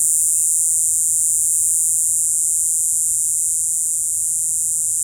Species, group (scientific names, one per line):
Diceroprocta eugraphica
Cicadidae